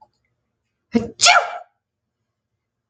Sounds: Sneeze